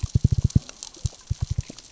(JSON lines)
{"label": "biophony, knock", "recorder": "SoundTrap 600 or HydroMoth"}